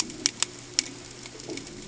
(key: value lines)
label: ambient
recorder: HydroMoth